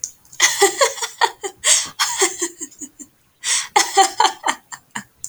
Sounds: Laughter